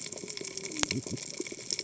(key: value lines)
label: biophony, cascading saw
recorder: HydroMoth